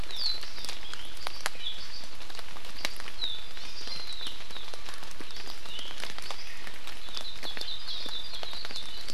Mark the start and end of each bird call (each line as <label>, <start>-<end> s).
Hawaii Amakihi (Chlorodrepanis virens), 1.5-1.8 s
Hawaii Amakihi (Chlorodrepanis virens), 3.5-3.8 s
Hawaii Akepa (Loxops coccineus), 7.0-9.0 s